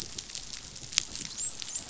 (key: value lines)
label: biophony, dolphin
recorder: SoundTrap 500